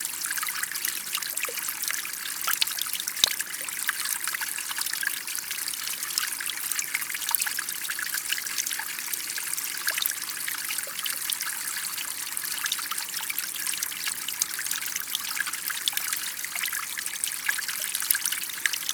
Is the sound of the water constant?
yes